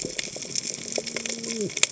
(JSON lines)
{"label": "biophony, cascading saw", "recorder": "HydroMoth"}